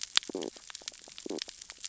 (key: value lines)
label: biophony, stridulation
recorder: SoundTrap 600 or HydroMoth